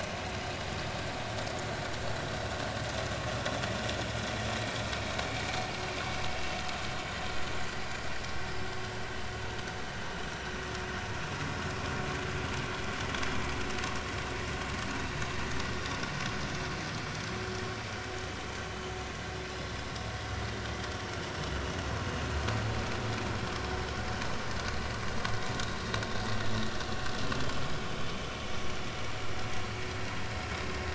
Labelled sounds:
18.7	18.9	vessel noise, 2.9 to 3.1 kHz

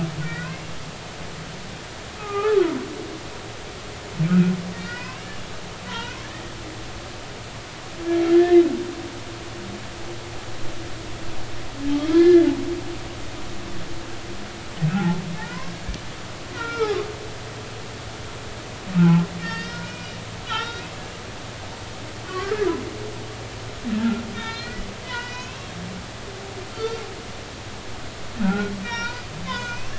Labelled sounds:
0.2	0.6	humpback whale, 1.3 to 2.0 kHz
2.2	2.6	humpback whale, 0.80 to 2.6 kHz
4.3	5.3	humpback whale, 0.93 to 5.3 kHz
5.9	6.2	humpback whale, 0.86 to 2.0 kHz
8.3	8.6	humpback whale, 1.7 to 2.2 kHz
11.9	12.4	humpback whale, 1.6 to 3.5 kHz
14.9	15.7	humpback whale, 0.80 to 2.2 kHz
16.5	18.0	humpback whale, 1.1 to 2.4 kHz
19.0	20.1	humpback whale, 0.80 to 5.4 kHz
20.5	20.9	humpback whale, 0.83 to 5.7 kHz
22.2	22.7	humpback whale, 1.1 to 4.5 kHz
24.0	25.7	humpback whale, 1.3 to 5.7 kHz
26.7	27.0	humpback whale, 1.3 to 4.6 kHz
28.4	29.9	humpback whale, 0.86 to 6.4 kHz

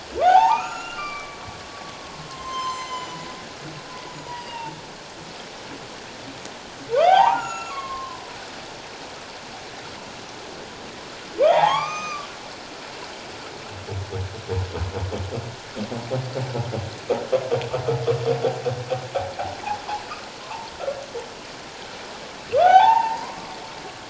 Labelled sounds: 0.2	1.4	humpback whale, 0.78 to 7.0 kHz
2.0	3.3	humpback whale, 0.91 to 8.0 kHz
4.1	4.8	humpback whale, 0.84 to 7.0 kHz
7.0	8.2	humpback whale, 0.78 to 7.0 kHz
11.4	12.3	humpback whale, 0.78 to 6.2 kHz
20.4	20.7	humpback whale, 0.81 to 1.2 kHz
22.5	23.5	humpback whale, 0.78 to 2.8 kHz

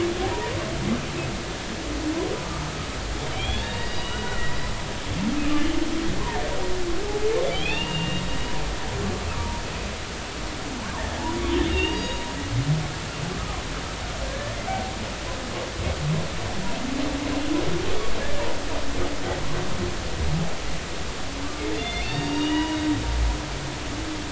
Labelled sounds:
3.3	4.5	humpback whale, 1.3 to 4.9 kHz
7.5	8.3	humpback whale, 0.83 to 3.8 kHz
11.6	12.3	humpback whale, 2.7 to 6.7 kHz
13.3	13.6	humpback whale, 1.1 to 1.3 kHz
14.3	14.9	humpback whale, 0.80 to 1.8 kHz
21.8	22.8	humpback whale, 0.90 to 4.7 kHz

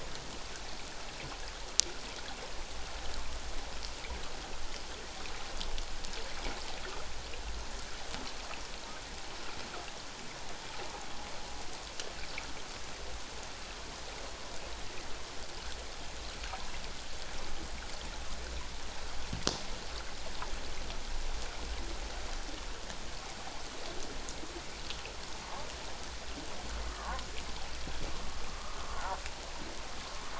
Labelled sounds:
26.9	27.3	humpback whale, 0.81 to 1.3 kHz
28.5	28.8	humpback whale, 1.0 to 1.3 kHz

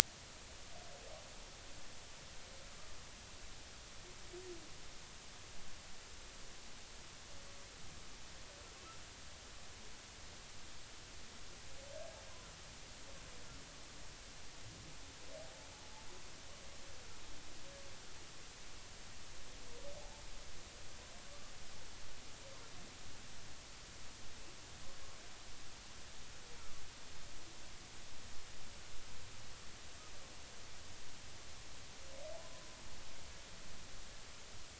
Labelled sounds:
21.3	21.5	humpback whale, 1.1 to 1.2 kHz

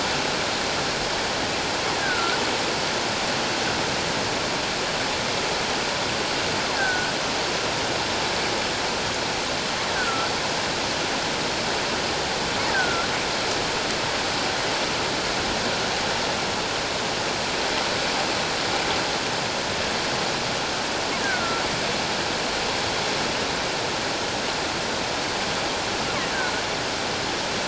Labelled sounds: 2.0	2.4	killer whale, offshore, call OFF17, 1.3 to 1.8 kHz
6.8	7.2	killer whale, offshore, call OFF17, 1.4 to 1.7 kHz
9.9	10.3	killer whale, offshore, call OFF17, 1.3 to 1.6 kHz
12.7	13.1	killer whale, offshore, call OFF17, 1.3 to 1.7 kHz
21.2	21.6	killer whale, offshore, call OFF17, 1.3 to 1.8 kHz

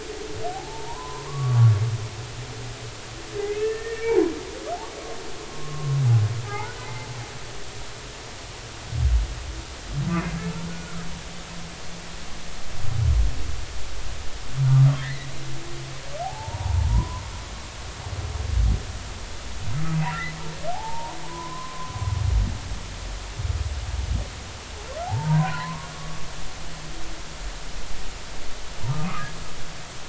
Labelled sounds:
0.5	1.7	humpback whale, 0.80 to 1.2 kHz
3.3	4.2	humpback whale, 1.7 to 2.7 kHz
5.5	5.9	humpback whale, 1.0 to 1.1 kHz
6.5	7.1	humpback whale, 0.80 to 2.1 kHz
10.1	11.0	humpback whale, 1.2 to 2.2 kHz
14.7	15.3	humpback whale, 1.2 to 2.1 kHz
16.2	17.2	humpback whale, 0.80 to 1.1 kHz
20.0	21.9	humpback whale, 0.80 to 2.1 kHz
25.0	26.2	humpback whale, 0.80 to 1.2 kHz

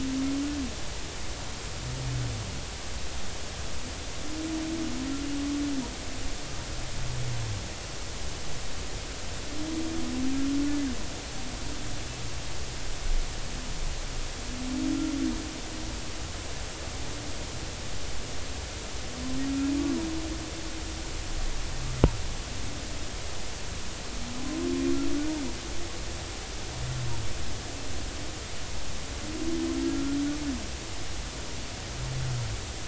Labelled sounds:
29.8	30.2	humpback whale, 1.3 to 1.5 kHz

